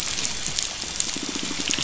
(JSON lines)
{"label": "anthrophony, boat engine", "recorder": "SoundTrap 500"}
{"label": "biophony, pulse", "recorder": "SoundTrap 500"}